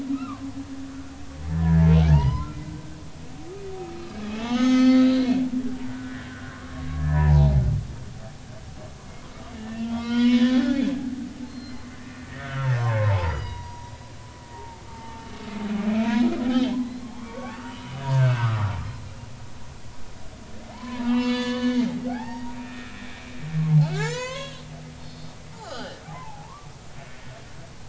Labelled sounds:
0.0	1.1	humpback whale, 0.99 to 4.4 kHz
1.5	2.5	humpback whale, 0.83 to 5.2 kHz
4.3	7.6	humpback whale, 0.80 to 6.6 kHz
9.5	10.8	humpback whale, 0.80 to 5.6 kHz
11.5	11.9	humpback whale, 4.1 to 4.3 kHz
12.4	13.9	humpback whale, 0.80 to 5.0 kHz
14.5	15.3	humpback whale, 0.83 to 0.96 kHz
15.8	16.8	humpback whale, 1.2 to 3.3 kHz
17.2	19.1	humpback whale, 0.99 to 4.8 kHz
20.7	23.3	humpback whale, 0.80 to 6.6 kHz
23.8	24.6	humpback whale, 0.80 to 7.4 kHz
25.5	26.7	humpback whale, 0.80 to 4.9 kHz

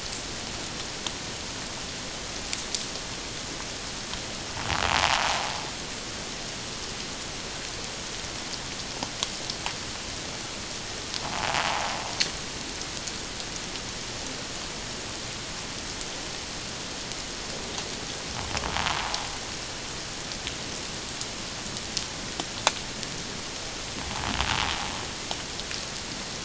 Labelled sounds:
4.9	5.3	invertebrate grinding on or near the hydrophone, 0.78 to 1.1 kHz

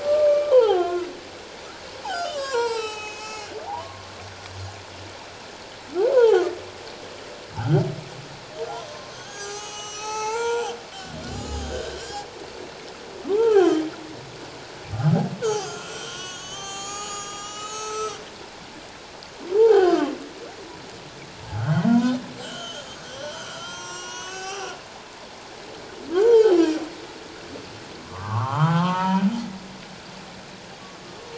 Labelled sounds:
0.0	1.1	humpback whale, 0.78 to 6.5 kHz
2.1	4.0	humpback whale, 0.78 to 7.9 kHz
6.1	6.4	humpback whale, 0.78 to 1.1 kHz
9.1	10.8	humpback whale, 0.78 to 7.9 kHz
11.3	12.3	humpback whale, 1.1 to 3.0 kHz
13.3	13.8	humpback whale, 0.78 to 3.3 kHz
15.4	18.2	humpback whale, 0.78 to 8.0 kHz
19.6	20.1	humpback whale, 0.78 to 1.7 kHz
21.5	22.2	humpback whale, 0.91 to 3.2 kHz
22.4	24.8	humpback whale, 0.78 to 7.9 kHz
26.1	26.6	humpback whale, 0.78 to 3.4 kHz
28.0	29.2	humpback whale, 0.78 to 3.3 kHz

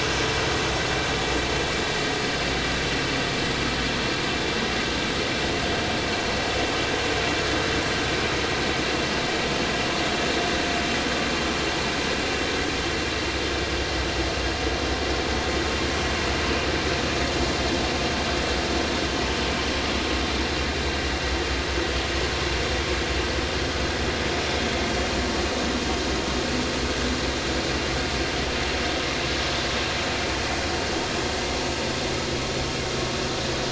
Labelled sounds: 19.4	19.6	vessel noise, 2.9 to 3.1 kHz

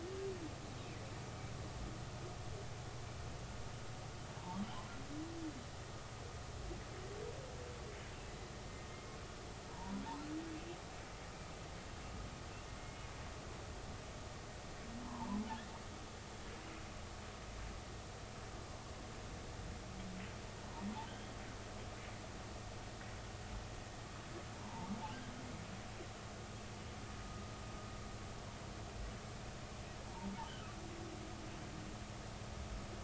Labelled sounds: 8.9	10.0	humpback whale, 0.83 to 2.2 kHz
12.8	13.1	humpback whale, 2.1 to 2.2 kHz
15.0	15.4	humpback whale, 0.83 to 1.1 kHz
21.0	21.3	humpback whale, 2.9 to 3.4 kHz
24.6	24.9	humpback whale, 0.83 to 1.1 kHz
30.0	30.8	humpback whale, 0.83 to 1.6 kHz

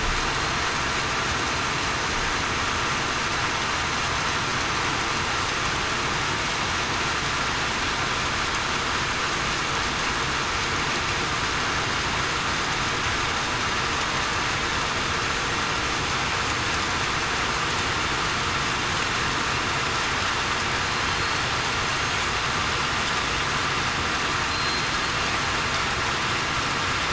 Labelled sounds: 24.5	25.0	killer whale, southern resident, 4.1 to 4.2 kHz

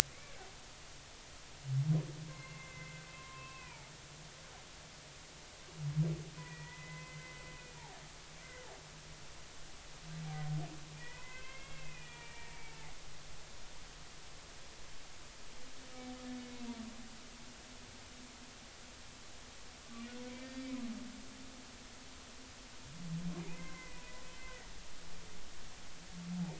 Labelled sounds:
0.1	0.4	humpback whale, 2.0 to 2.4 kHz
2.3	3.9	humpback whale, 0.83 to 2.8 kHz
6.4	8.0	humpback whale, 0.80 to 2.1 kHz
8.4	8.7	humpback whale, 1.9 to 2.1 kHz
11.0	12.8	humpback whale, 0.90 to 2.8 kHz
16.4	16.6	humpback whale, 2.1 to 2.3 kHz
20.4	20.7	humpback whale, 1.8 to 4.8 kHz
23.5	24.7	humpback whale, 0.96 to 2.2 kHz

